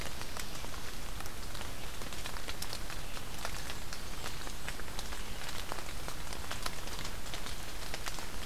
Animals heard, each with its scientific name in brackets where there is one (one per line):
Blackburnian Warbler (Setophaga fusca)